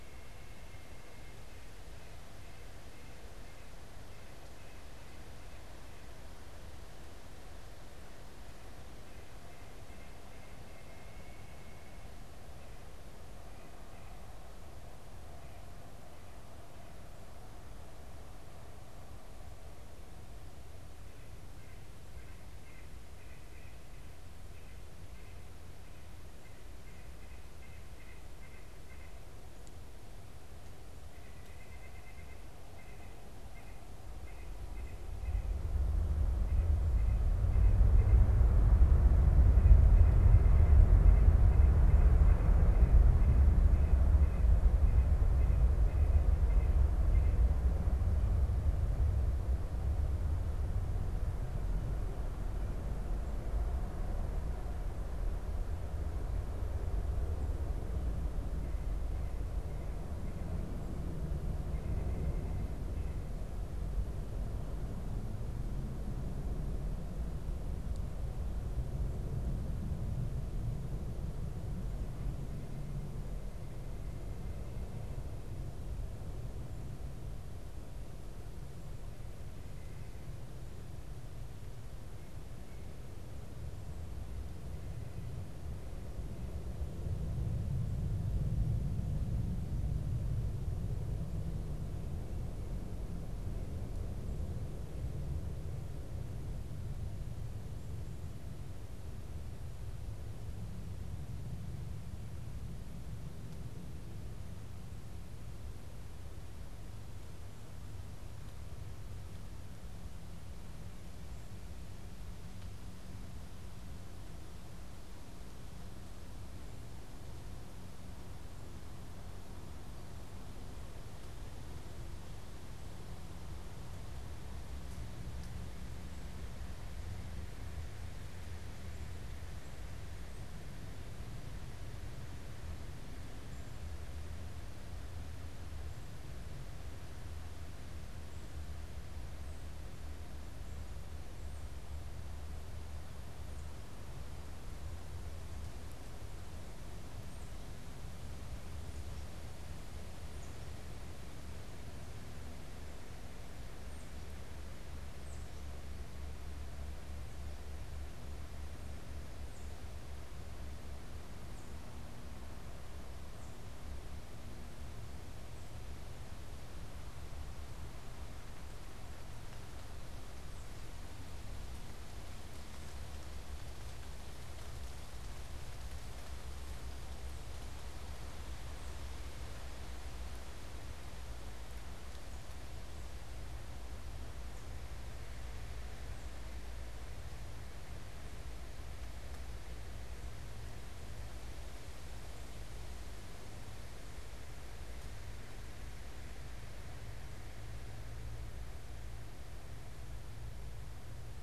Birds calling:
White-breasted Nuthatch (Sitta carolinensis)

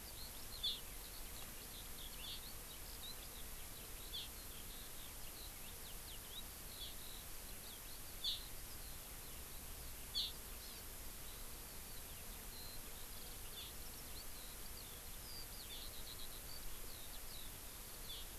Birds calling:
Eurasian Skylark (Alauda arvensis)

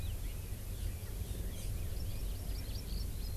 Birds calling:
Hawaii Amakihi (Chlorodrepanis virens)

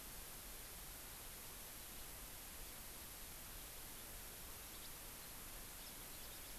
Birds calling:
House Finch (Haemorhous mexicanus)

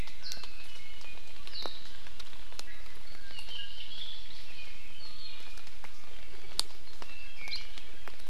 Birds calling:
Hawaii Amakihi (Chlorodrepanis virens)
Apapane (Himatione sanguinea)

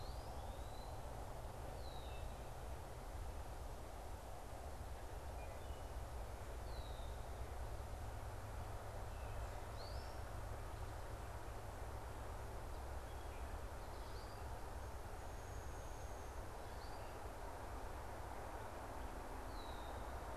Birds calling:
unidentified bird
Wood Thrush (Hylocichla mustelina)
Red-winged Blackbird (Agelaius phoeniceus)

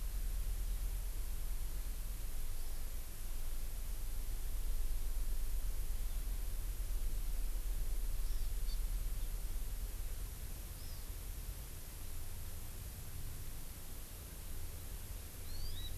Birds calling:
Hawaii Amakihi (Chlorodrepanis virens)

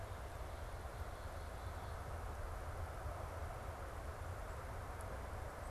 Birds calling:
Black-capped Chickadee (Poecile atricapillus)

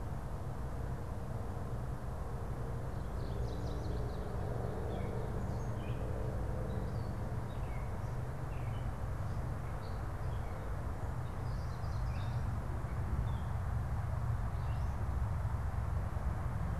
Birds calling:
Chestnut-sided Warbler (Setophaga pensylvanica)
Gray Catbird (Dumetella carolinensis)

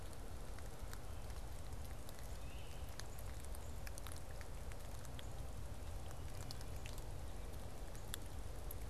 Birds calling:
Great Crested Flycatcher (Myiarchus crinitus)

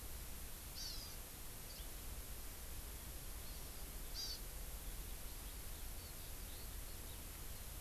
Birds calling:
Hawaii Amakihi (Chlorodrepanis virens)
Eurasian Skylark (Alauda arvensis)

